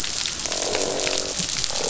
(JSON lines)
{"label": "biophony, croak", "recorder": "SoundTrap 500"}